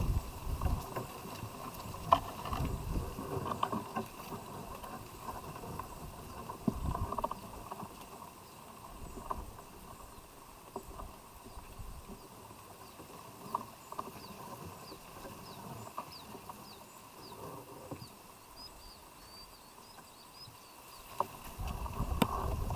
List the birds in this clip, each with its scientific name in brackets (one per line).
Cinnamon-chested Bee-eater (Merops oreobates)